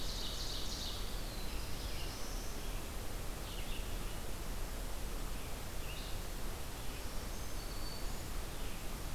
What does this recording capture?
Ovenbird, Red-eyed Vireo, Black-throated Blue Warbler, Black-throated Green Warbler